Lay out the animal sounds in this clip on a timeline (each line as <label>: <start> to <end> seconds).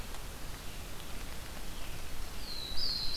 Red-eyed Vireo (Vireo olivaceus): 0.0 to 2.3 seconds
Black-throated Blue Warbler (Setophaga caerulescens): 2.1 to 3.2 seconds